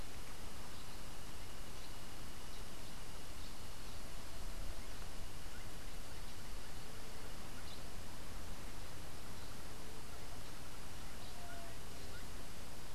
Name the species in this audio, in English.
Gray-headed Chachalaca, White-tipped Dove